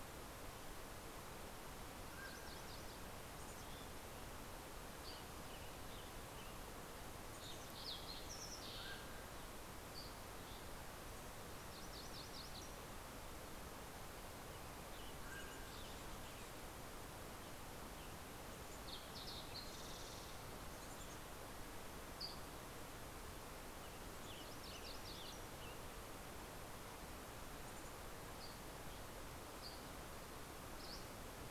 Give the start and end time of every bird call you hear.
1.8s-3.1s: Mountain Quail (Oreortyx pictus)
1.8s-3.4s: Yellow-rumped Warbler (Setophaga coronata)
3.2s-4.3s: Mountain Chickadee (Poecile gambeli)
4.9s-6.1s: Western Tanager (Piranga ludoviciana)
6.6s-9.7s: Fox Sparrow (Passerella iliaca)
8.5s-9.7s: Mountain Quail (Oreortyx pictus)
9.6s-10.9s: Dusky Flycatcher (Empidonax oberholseri)
11.5s-13.4s: MacGillivray's Warbler (Geothlypis tolmiei)
13.9s-17.0s: Western Tanager (Piranga ludoviciana)
14.5s-16.2s: Mountain Quail (Oreortyx pictus)
18.2s-20.6s: Fox Sparrow (Passerella iliaca)
20.4s-21.7s: Mountain Chickadee (Poecile gambeli)
22.0s-22.9s: Dusky Flycatcher (Empidonax oberholseri)
23.4s-26.5s: Western Tanager (Piranga ludoviciana)
24.0s-26.0s: MacGillivray's Warbler (Geothlypis tolmiei)
27.3s-28.1s: Mountain Chickadee (Poecile gambeli)
28.2s-31.3s: Dusky Flycatcher (Empidonax oberholseri)

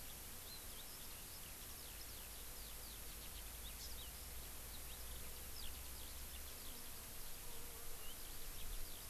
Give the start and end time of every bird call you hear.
0.0s-9.1s: Eurasian Skylark (Alauda arvensis)

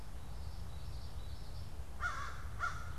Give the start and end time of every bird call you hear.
0.0s-1.9s: Common Yellowthroat (Geothlypis trichas)
0.0s-3.0s: American Crow (Corvus brachyrhynchos)

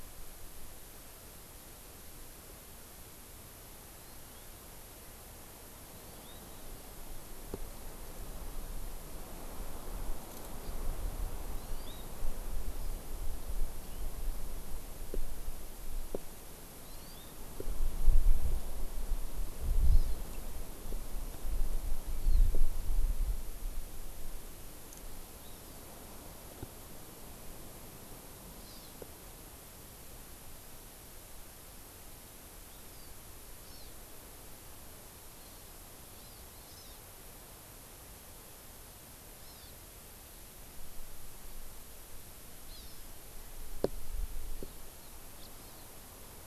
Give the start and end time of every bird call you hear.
4.0s-4.5s: Hawaii Amakihi (Chlorodrepanis virens)
6.1s-6.4s: Hawaii Amakihi (Chlorodrepanis virens)
11.6s-12.1s: Hawaii Amakihi (Chlorodrepanis virens)
13.8s-14.1s: House Finch (Haemorhous mexicanus)
16.9s-17.3s: Hawaii Amakihi (Chlorodrepanis virens)
19.9s-20.2s: Hawaii Amakihi (Chlorodrepanis virens)
22.2s-22.5s: Hawaii Amakihi (Chlorodrepanis virens)
25.4s-25.8s: Hawaii Amakihi (Chlorodrepanis virens)
28.6s-29.0s: Hawaii Amakihi (Chlorodrepanis virens)
32.7s-33.1s: Hawaii Amakihi (Chlorodrepanis virens)
33.6s-33.9s: Hawaii Amakihi (Chlorodrepanis virens)
35.4s-35.8s: Hawaii Amakihi (Chlorodrepanis virens)
36.2s-37.0s: Hawaii Amakihi (Chlorodrepanis virens)
39.4s-39.8s: Hawaii Amakihi (Chlorodrepanis virens)
42.7s-43.1s: Hawaii Amakihi (Chlorodrepanis virens)
45.4s-45.5s: House Finch (Haemorhous mexicanus)
45.6s-45.9s: Hawaii Amakihi (Chlorodrepanis virens)

